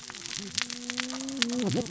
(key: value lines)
label: biophony, cascading saw
recorder: SoundTrap 600 or HydroMoth